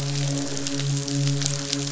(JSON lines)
{"label": "biophony, midshipman", "recorder": "SoundTrap 500"}